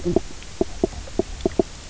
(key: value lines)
label: biophony, knock croak
recorder: SoundTrap 300